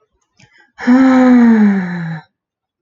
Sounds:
Sigh